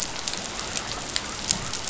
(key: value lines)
label: biophony
recorder: SoundTrap 500